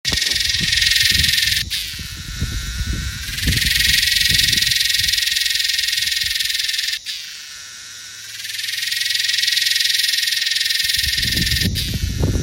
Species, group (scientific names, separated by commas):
Psaltoda harrisii, Cicadidae